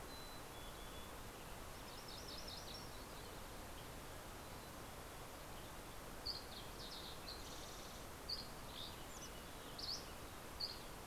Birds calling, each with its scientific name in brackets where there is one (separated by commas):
MacGillivray's Warbler (Geothlypis tolmiei), Dusky Flycatcher (Empidonax oberholseri), Fox Sparrow (Passerella iliaca), Mountain Chickadee (Poecile gambeli)